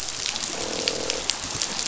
{"label": "biophony, croak", "recorder": "SoundTrap 500"}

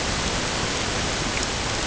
{"label": "ambient", "recorder": "HydroMoth"}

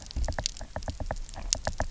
{"label": "biophony, knock", "recorder": "SoundTrap 300"}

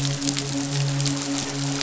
{"label": "biophony, midshipman", "recorder": "SoundTrap 500"}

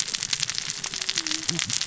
{"label": "biophony, cascading saw", "recorder": "SoundTrap 600 or HydroMoth"}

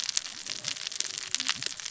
{"label": "biophony, cascading saw", "recorder": "SoundTrap 600 or HydroMoth"}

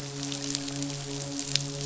{"label": "biophony, midshipman", "recorder": "SoundTrap 500"}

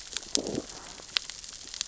{"label": "biophony, growl", "recorder": "SoundTrap 600 or HydroMoth"}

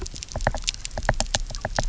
{"label": "biophony, knock", "recorder": "SoundTrap 300"}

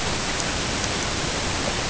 {"label": "ambient", "recorder": "HydroMoth"}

